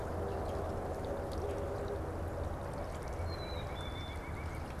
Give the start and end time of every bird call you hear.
[2.80, 4.80] White-breasted Nuthatch (Sitta carolinensis)
[3.10, 4.30] Black-capped Chickadee (Poecile atricapillus)

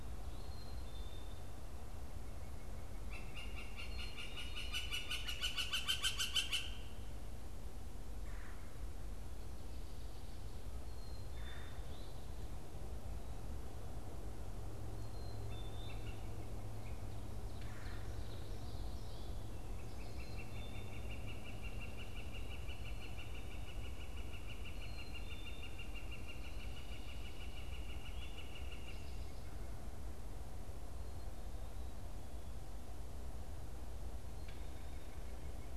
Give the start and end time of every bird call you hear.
[0.00, 4.23] Black-capped Chickadee (Poecile atricapillus)
[2.93, 7.03] Northern Flicker (Colaptes auratus)
[8.13, 11.73] Red-bellied Woodpecker (Melanerpes carolinus)
[10.83, 16.13] Black-capped Chickadee (Poecile atricapillus)
[11.83, 12.43] Eastern Towhee (Pipilo erythrophthalmus)
[17.23, 18.13] Red-bellied Woodpecker (Melanerpes carolinus)
[17.83, 19.43] Ovenbird (Seiurus aurocapilla)
[19.73, 29.23] Northern Flicker (Colaptes auratus)
[19.93, 26.03] Black-capped Chickadee (Poecile atricapillus)

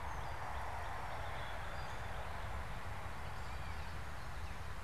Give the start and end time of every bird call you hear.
[0.00, 2.28] Northern Cardinal (Cardinalis cardinalis)
[0.00, 4.84] Gray Catbird (Dumetella carolinensis)

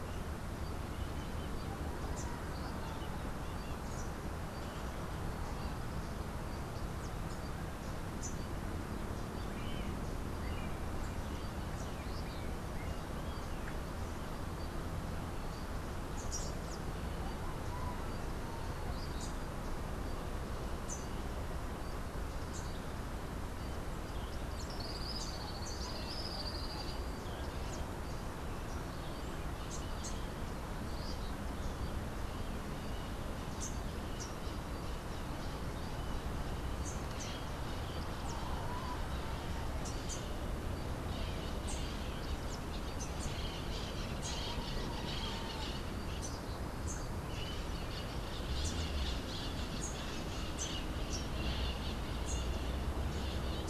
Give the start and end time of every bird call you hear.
[2.09, 2.39] Rufous-capped Warbler (Basileuterus rufifrons)
[15.99, 21.49] Rufous-capped Warbler (Basileuterus rufifrons)
[24.69, 27.19] Tropical Kingbird (Tyrannus melancholicus)
[29.49, 37.49] Rufous-capped Warbler (Basileuterus rufifrons)
[39.69, 53.70] Rufous-capped Warbler (Basileuterus rufifrons)
[41.09, 53.70] Crimson-fronted Parakeet (Psittacara finschi)

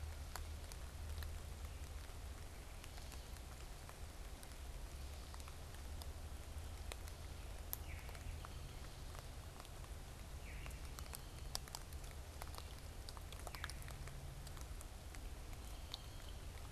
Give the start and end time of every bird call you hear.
[7.77, 8.17] unidentified bird
[10.27, 10.87] unidentified bird

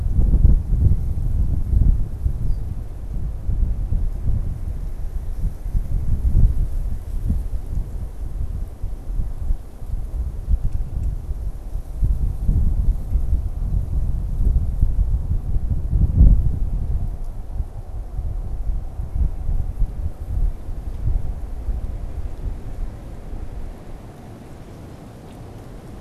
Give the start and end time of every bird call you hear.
[2.29, 2.79] Red-winged Blackbird (Agelaius phoeniceus)

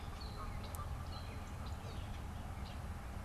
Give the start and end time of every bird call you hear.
[0.00, 3.25] Canada Goose (Branta canadensis)

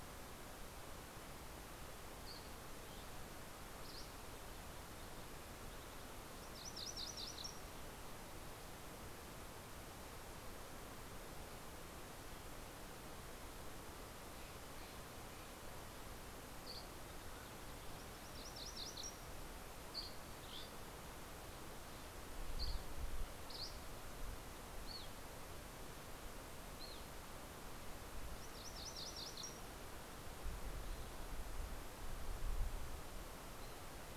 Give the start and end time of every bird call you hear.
[1.49, 4.59] Dusky Flycatcher (Empidonax oberholseri)
[6.19, 8.79] MacGillivray's Warbler (Geothlypis tolmiei)
[13.09, 16.29] Steller's Jay (Cyanocitta stelleri)
[15.89, 17.59] Dusky Flycatcher (Empidonax oberholseri)
[17.79, 19.39] MacGillivray's Warbler (Geothlypis tolmiei)
[19.89, 24.19] Dusky Flycatcher (Empidonax oberholseri)
[24.69, 27.49] Dusky Flycatcher (Empidonax oberholseri)
[28.09, 30.29] MacGillivray's Warbler (Geothlypis tolmiei)

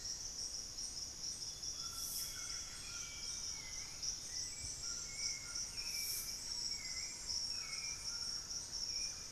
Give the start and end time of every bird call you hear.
[0.00, 9.32] Buff-breasted Wren (Cantorchilus leucotis)
[0.00, 9.32] Golden-crowned Spadebill (Platyrinchus coronatus)
[0.00, 9.32] White-throated Toucan (Ramphastos tucanus)
[0.70, 3.60] Amazonian Grosbeak (Cyanoloxia rothschildii)
[2.00, 9.32] Hauxwell's Thrush (Turdus hauxwelli)
[3.20, 9.32] Thrush-like Wren (Campylorhynchus turdinus)

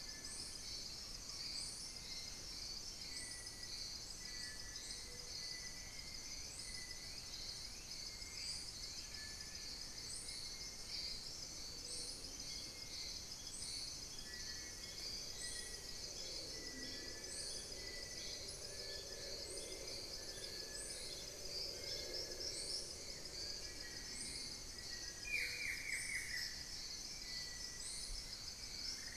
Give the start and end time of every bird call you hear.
[0.00, 29.16] Little Tinamou (Crypturellus soui)
[5.91, 9.31] Gray Antwren (Myrmotherula menetriesii)
[16.61, 26.01] Long-billed Woodcreeper (Nasica longirostris)
[25.11, 26.71] Buff-throated Woodcreeper (Xiphorhynchus guttatus)

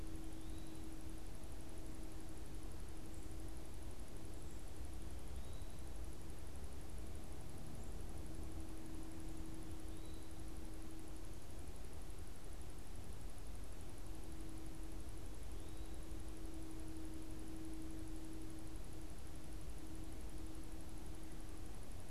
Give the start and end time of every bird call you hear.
[0.00, 22.10] Eastern Wood-Pewee (Contopus virens)

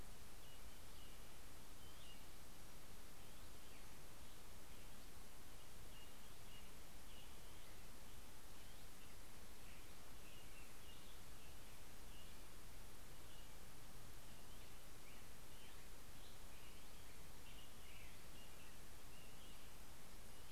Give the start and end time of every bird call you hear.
[0.00, 3.10] American Robin (Turdus migratorius)
[1.60, 3.70] Hutton's Vireo (Vireo huttoni)
[4.80, 7.70] American Robin (Turdus migratorius)
[7.40, 8.70] Hutton's Vireo (Vireo huttoni)
[8.90, 20.52] American Robin (Turdus migratorius)
[18.90, 20.52] Hutton's Vireo (Vireo huttoni)

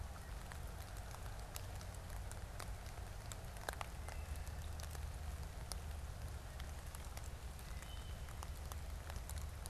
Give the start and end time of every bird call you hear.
[3.81, 4.61] Wood Thrush (Hylocichla mustelina)
[7.50, 8.30] Wood Thrush (Hylocichla mustelina)

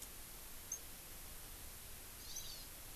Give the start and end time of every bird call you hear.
[2.20, 2.60] Hawaii Amakihi (Chlorodrepanis virens)

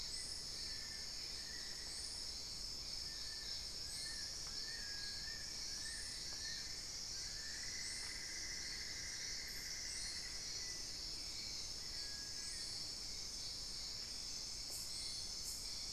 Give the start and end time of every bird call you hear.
[0.00, 2.50] Amazonian Barred-Woodcreeper (Dendrocolaptes certhia)
[0.00, 7.70] Long-billed Woodcreeper (Nasica longirostris)
[4.70, 5.30] Cinereous Tinamou (Crypturellus cinereus)
[7.40, 10.80] Cinnamon-throated Woodcreeper (Dendrexetastes rufigula)
[11.80, 12.80] Cinereous Tinamou (Crypturellus cinereus)

